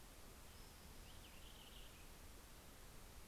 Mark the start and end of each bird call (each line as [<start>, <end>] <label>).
[0.00, 1.70] Spotted Towhee (Pipilo maculatus)
[0.40, 2.60] Purple Finch (Haemorhous purpureus)